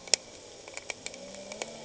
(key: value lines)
label: anthrophony, boat engine
recorder: HydroMoth